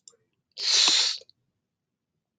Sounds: Sniff